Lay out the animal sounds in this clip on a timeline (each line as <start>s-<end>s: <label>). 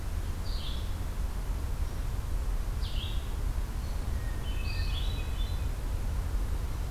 0.3s-6.9s: Red-eyed Vireo (Vireo olivaceus)